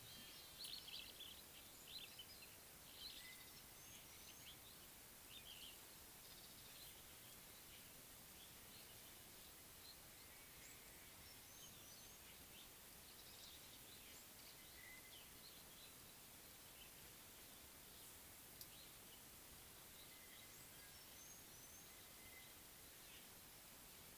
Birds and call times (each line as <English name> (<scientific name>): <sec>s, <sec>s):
Superb Starling (Lamprotornis superbus): 1.0s, 5.6s